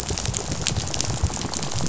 {"label": "biophony, rattle", "recorder": "SoundTrap 500"}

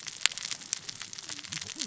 {"label": "biophony, cascading saw", "recorder": "SoundTrap 600 or HydroMoth"}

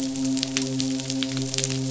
{"label": "biophony, midshipman", "recorder": "SoundTrap 500"}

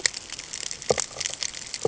{"label": "ambient", "recorder": "HydroMoth"}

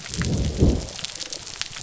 {"label": "biophony", "recorder": "SoundTrap 300"}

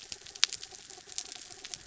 {"label": "anthrophony, mechanical", "recorder": "SoundTrap 300"}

